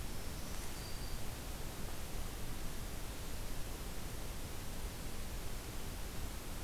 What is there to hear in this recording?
Black-throated Green Warbler